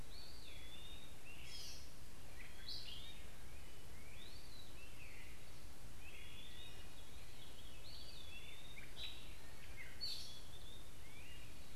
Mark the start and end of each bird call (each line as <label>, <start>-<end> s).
Eastern Wood-Pewee (Contopus virens), 0.0-11.8 s
Gray Catbird (Dumetella carolinensis), 0.0-11.8 s
Great Crested Flycatcher (Myiarchus crinitus), 0.0-11.8 s